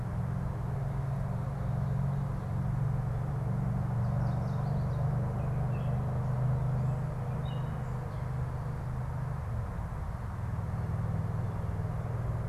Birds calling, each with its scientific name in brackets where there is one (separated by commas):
unidentified bird, Gray Catbird (Dumetella carolinensis)